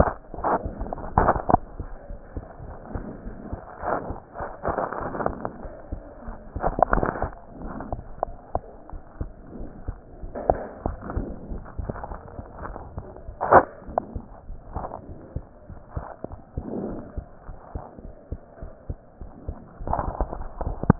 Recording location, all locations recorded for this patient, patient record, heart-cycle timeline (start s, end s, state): pulmonary valve (PV)
aortic valve (AV)+pulmonary valve (PV)+tricuspid valve (TV)+mitral valve (MV)
#Age: Child
#Sex: Female
#Height: 118.0 cm
#Weight: 20.6 kg
#Pregnancy status: False
#Murmur: Absent
#Murmur locations: nan
#Most audible location: nan
#Systolic murmur timing: nan
#Systolic murmur shape: nan
#Systolic murmur grading: nan
#Systolic murmur pitch: nan
#Systolic murmur quality: nan
#Diastolic murmur timing: nan
#Diastolic murmur shape: nan
#Diastolic murmur grading: nan
#Diastolic murmur pitch: nan
#Diastolic murmur quality: nan
#Outcome: Abnormal
#Campaign: 2015 screening campaign
0.00	14.26	unannotated
14.26	14.47	diastole
14.47	14.58	S1
14.58	14.72	systole
14.72	14.88	S2
14.88	15.07	diastole
15.07	15.18	S1
15.18	15.32	systole
15.32	15.46	S2
15.46	15.67	diastole
15.67	15.78	S1
15.78	15.94	systole
15.94	16.08	S2
16.08	16.28	diastole
16.28	16.40	S1
16.40	16.54	systole
16.54	16.66	S2
16.66	16.84	diastole
16.84	17.00	S1
17.00	17.14	systole
17.14	17.28	S2
17.28	17.48	diastole
17.48	17.58	S1
17.58	17.76	systole
17.76	17.86	S2
17.86	18.03	diastole
18.03	18.14	S1
18.14	18.28	systole
18.28	18.38	S2
18.38	18.58	diastole
18.58	18.70	S1
18.70	18.86	systole
18.86	18.96	S2
18.96	19.17	diastole
19.17	19.30	S1
19.30	19.46	systole
19.46	19.56	S2
19.56	19.79	diastole
19.79	20.99	unannotated